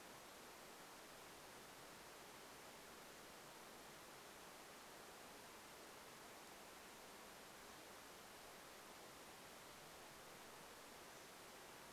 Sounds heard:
forest ambience